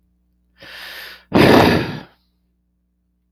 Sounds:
Sigh